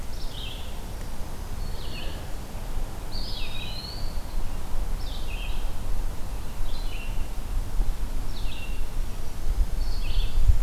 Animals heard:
Red-eyed Vireo (Vireo olivaceus), Black-throated Green Warbler (Setophaga virens), Eastern Wood-Pewee (Contopus virens)

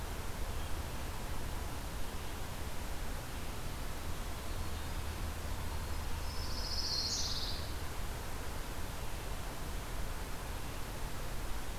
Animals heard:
Black-throated Green Warbler (Setophaga virens), Pine Warbler (Setophaga pinus)

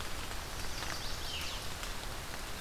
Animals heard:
Chestnut-sided Warbler (Setophaga pensylvanica)

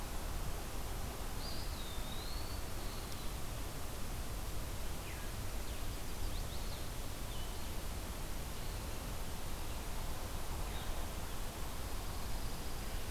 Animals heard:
Blue-headed Vireo (Vireo solitarius), Chestnut-sided Warbler (Setophaga pensylvanica), Dark-eyed Junco (Junco hyemalis), Veery (Catharus fuscescens), Eastern Wood-Pewee (Contopus virens)

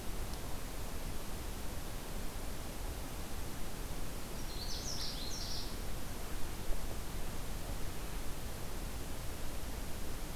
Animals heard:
Canada Warbler (Cardellina canadensis)

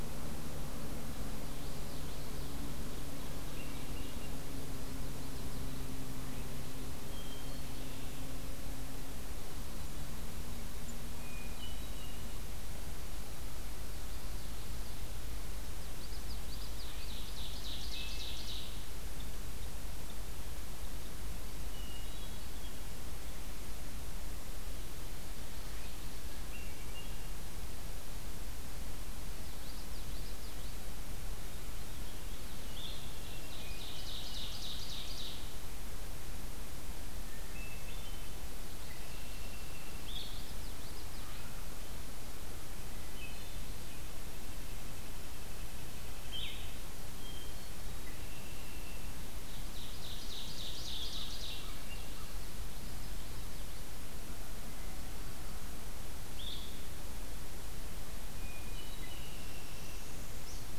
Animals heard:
Ovenbird (Seiurus aurocapilla), Common Yellowthroat (Geothlypis trichas), Blue-headed Vireo (Vireo solitarius), White-breasted Nuthatch (Sitta carolinensis), Northern Parula (Setophaga americana), Hermit Thrush (Catharus guttatus), American Crow (Corvus brachyrhynchos), Red-winged Blackbird (Agelaius phoeniceus)

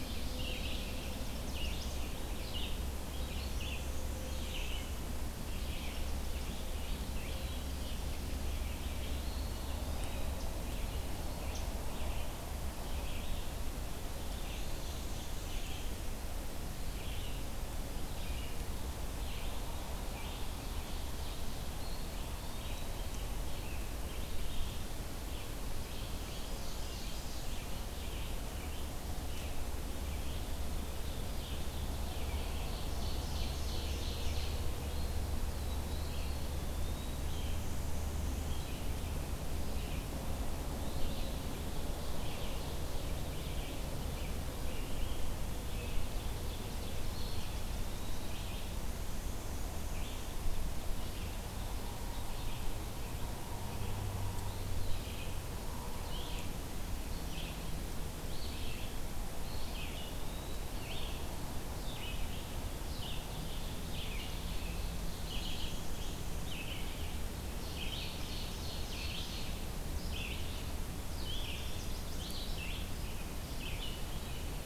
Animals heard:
Black-and-white Warbler (Mniotilta varia), Red-eyed Vireo (Vireo olivaceus), Eastern Wood-Pewee (Contopus virens), Ovenbird (Seiurus aurocapilla), Chestnut-sided Warbler (Setophaga pensylvanica)

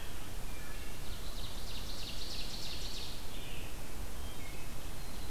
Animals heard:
Ovenbird (Seiurus aurocapilla), Wood Thrush (Hylocichla mustelina)

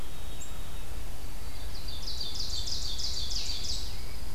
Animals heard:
Pine Warbler (Setophaga pinus), Ovenbird (Seiurus aurocapilla), White-throated Sparrow (Zonotrichia albicollis), Rose-breasted Grosbeak (Pheucticus ludovicianus)

